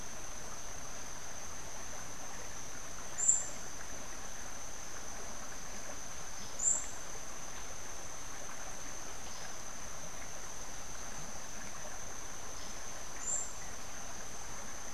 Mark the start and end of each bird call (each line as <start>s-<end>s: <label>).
3.1s-3.7s: Buff-throated Saltator (Saltator maximus)
6.4s-7.0s: Buff-throated Saltator (Saltator maximus)
13.0s-13.7s: Buff-throated Saltator (Saltator maximus)